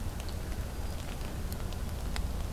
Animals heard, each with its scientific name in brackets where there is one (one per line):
Hermit Thrush (Catharus guttatus)